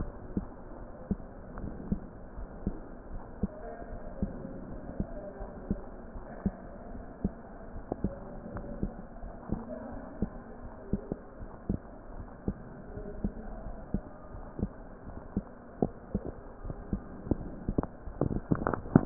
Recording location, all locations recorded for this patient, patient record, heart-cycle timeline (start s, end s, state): aortic valve (AV)
aortic valve (AV)+pulmonary valve (PV)+tricuspid valve (TV)+mitral valve (MV)
#Age: Child
#Sex: Male
#Height: 121.0 cm
#Weight: 26.1 kg
#Pregnancy status: False
#Murmur: Absent
#Murmur locations: nan
#Most audible location: nan
#Systolic murmur timing: nan
#Systolic murmur shape: nan
#Systolic murmur grading: nan
#Systolic murmur pitch: nan
#Systolic murmur quality: nan
#Diastolic murmur timing: nan
#Diastolic murmur shape: nan
#Diastolic murmur grading: nan
#Diastolic murmur pitch: nan
#Diastolic murmur quality: nan
#Outcome: Abnormal
#Campaign: 2015 screening campaign
0.00	2.04	unannotated
2.04	2.36	diastole
2.36	2.48	S1
2.48	2.62	systole
2.62	2.76	S2
2.76	3.10	diastole
3.10	3.22	S1
3.22	3.38	systole
3.38	3.54	S2
3.54	3.87	diastole
3.87	4.00	S1
4.00	4.20	systole
4.20	4.34	S2
4.34	4.68	diastole
4.68	4.80	S1
4.80	4.96	systole
4.96	5.08	S2
5.08	5.40	diastole
5.40	5.50	S1
5.50	5.66	systole
5.66	5.82	S2
5.82	6.14	diastole
6.14	6.24	S1
6.24	6.42	systole
6.42	6.56	S2
6.56	6.92	diastole
6.92	7.04	S1
7.04	7.20	systole
7.20	7.34	S2
7.34	7.74	diastole
7.74	7.84	S1
7.84	8.02	systole
8.02	8.16	S2
8.16	8.54	diastole
8.54	8.66	S1
8.66	8.80	systole
8.80	8.94	S2
8.94	9.24	diastole
9.24	9.34	S1
9.34	9.50	systole
9.50	9.64	S2
9.64	9.94	diastole
9.94	10.04	S1
10.04	10.20	systole
10.20	10.32	S2
10.32	10.64	diastole
10.64	10.72	S1
10.72	10.90	systole
10.90	11.04	S2
11.04	11.36	diastole
11.36	11.48	S1
11.48	11.66	systole
11.66	11.80	S2
11.80	12.11	diastole
12.11	12.28	S1
12.28	12.46	systole
12.46	12.60	S2
12.60	12.94	diastole
12.94	13.06	S1
13.06	13.20	systole
13.20	13.34	S2
13.34	13.64	diastole
13.64	13.76	S1
13.76	13.92	systole
13.92	14.04	S2
14.04	14.34	diastole
14.34	14.44	S1
14.44	14.60	systole
14.60	14.72	S2
14.72	15.08	diastole
15.08	15.16	S1
15.16	15.32	systole
15.32	15.44	S2
15.44	15.80	diastole
15.80	15.92	S1
15.92	16.12	systole
16.12	16.26	S2
16.26	16.64	diastole
16.64	16.78	S1
16.78	16.90	systole
16.90	17.02	S2
17.02	17.32	diastole
17.32	17.50	S1
17.50	17.66	systole
17.66	17.76	S2
17.76	18.18	diastole
18.18	18.34	S1
18.34	18.50	systole
18.50	18.64	S2
18.64	18.94	diastole
18.94	19.06	unannotated